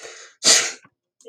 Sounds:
Sneeze